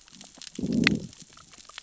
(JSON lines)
{"label": "biophony, growl", "recorder": "SoundTrap 600 or HydroMoth"}